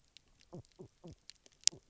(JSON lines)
{"label": "biophony, knock croak", "recorder": "SoundTrap 300"}